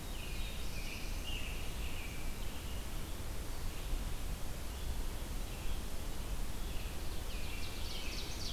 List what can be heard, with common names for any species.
Black-throated Blue Warbler, American Robin, Red-eyed Vireo, Ovenbird